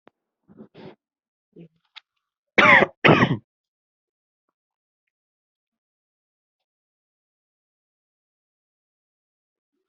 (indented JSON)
{
  "expert_labels": [
    {
      "quality": "ok",
      "cough_type": "dry",
      "dyspnea": false,
      "wheezing": false,
      "stridor": false,
      "choking": false,
      "congestion": false,
      "nothing": true,
      "diagnosis": "COVID-19",
      "severity": "mild"
    }
  ]
}